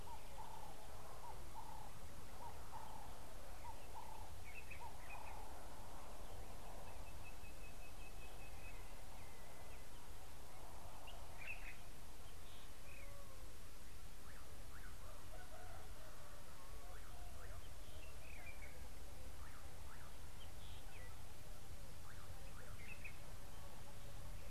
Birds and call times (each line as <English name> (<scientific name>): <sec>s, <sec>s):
Ring-necked Dove (Streptopelia capicola): 0.5s
Sulphur-breasted Bushshrike (Telophorus sulfureopectus): 7.7s
Common Bulbul (Pycnonotus barbatus): 11.6s